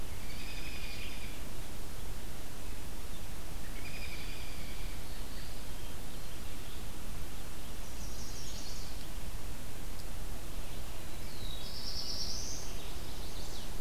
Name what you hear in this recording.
American Robin, Black-throated Blue Warbler, Red-eyed Vireo, Chestnut-sided Warbler